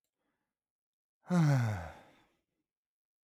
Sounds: Sigh